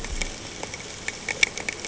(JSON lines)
{"label": "ambient", "recorder": "HydroMoth"}